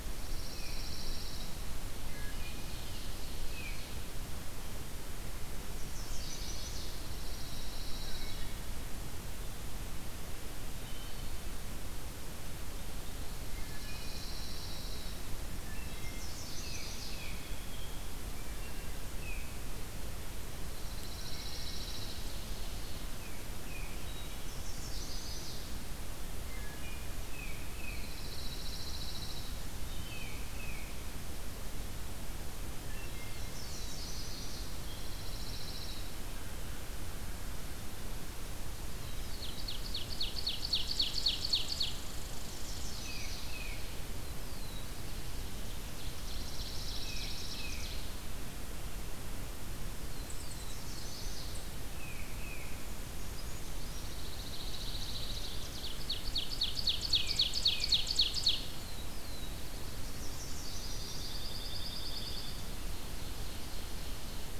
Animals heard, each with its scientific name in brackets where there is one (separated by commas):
Chestnut-sided Warbler (Setophaga pensylvanica), Pine Warbler (Setophaga pinus), Black-throated Blue Warbler (Setophaga caerulescens), Tufted Titmouse (Baeolophus bicolor), Ovenbird (Seiurus aurocapilla), Red Squirrel (Tamiasciurus hudsonicus), Wood Thrush (Hylocichla mustelina)